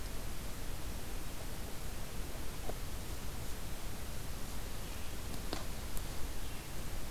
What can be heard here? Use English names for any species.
Red-eyed Vireo